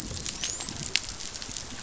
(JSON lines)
{"label": "biophony, dolphin", "recorder": "SoundTrap 500"}